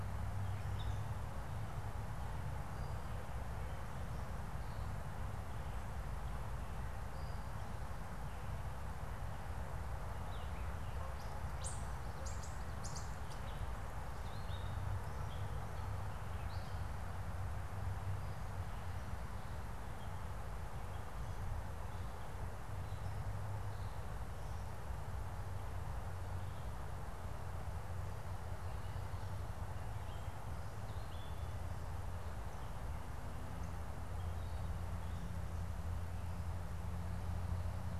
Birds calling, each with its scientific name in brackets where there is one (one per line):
Gray Catbird (Dumetella carolinensis)
unidentified bird